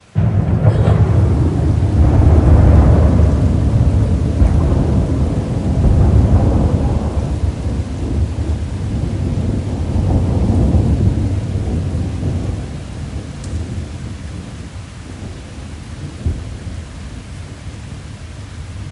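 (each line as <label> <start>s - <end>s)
Rain falls softly in a steady pattern. 0.0s - 18.9s
Thunder growls with a rumbling tone in a decreasing pattern while rain falls steadily. 0.1s - 13.9s
A short human vocal sound. 0.6s - 0.7s
A small bump noise. 16.2s - 16.4s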